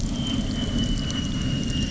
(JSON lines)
{"label": "anthrophony, boat engine", "recorder": "SoundTrap 300"}